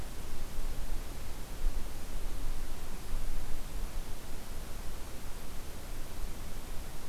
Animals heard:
forest ambience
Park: Hubbard Brook Experimental Forest